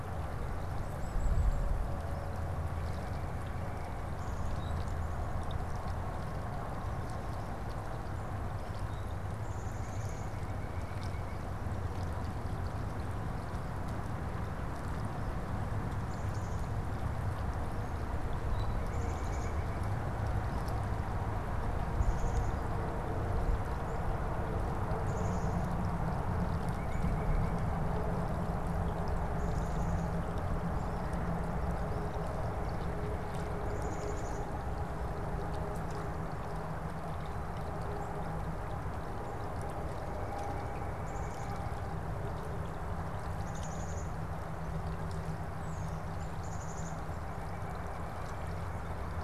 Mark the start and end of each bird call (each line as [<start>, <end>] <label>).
[0.47, 1.87] Black-capped Chickadee (Poecile atricapillus)
[9.17, 10.67] Black-capped Chickadee (Poecile atricapillus)
[9.67, 11.57] White-breasted Nuthatch (Sitta carolinensis)
[15.77, 16.87] Black-capped Chickadee (Poecile atricapillus)
[18.57, 19.67] Black-capped Chickadee (Poecile atricapillus)
[18.67, 19.97] White-breasted Nuthatch (Sitta carolinensis)
[21.77, 22.97] Black-capped Chickadee (Poecile atricapillus)
[24.87, 25.77] Black-capped Chickadee (Poecile atricapillus)
[26.67, 28.27] White-breasted Nuthatch (Sitta carolinensis)
[29.17, 30.27] Black-capped Chickadee (Poecile atricapillus)
[33.47, 34.87] Black-capped Chickadee (Poecile atricapillus)
[40.87, 41.57] Black-capped Chickadee (Poecile atricapillus)
[43.27, 44.27] Black-capped Chickadee (Poecile atricapillus)
[45.37, 46.07] Tufted Titmouse (Baeolophus bicolor)
[46.17, 46.97] Black-capped Chickadee (Poecile atricapillus)